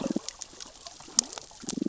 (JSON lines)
{"label": "biophony, cascading saw", "recorder": "SoundTrap 600 or HydroMoth"}